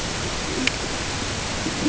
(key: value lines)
label: ambient
recorder: HydroMoth